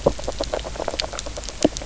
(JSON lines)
{"label": "biophony, knock croak", "recorder": "SoundTrap 300"}